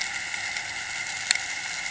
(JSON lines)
{"label": "anthrophony, boat engine", "recorder": "HydroMoth"}